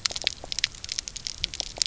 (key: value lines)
label: biophony, knock croak
recorder: SoundTrap 300